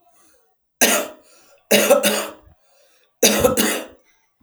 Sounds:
Cough